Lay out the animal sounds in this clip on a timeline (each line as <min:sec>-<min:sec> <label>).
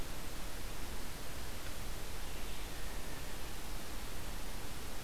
0:00.0-0:05.0 Red-eyed Vireo (Vireo olivaceus)